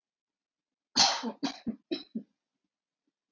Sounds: Cough